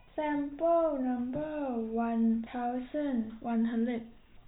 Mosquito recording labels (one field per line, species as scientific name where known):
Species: no mosquito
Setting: cup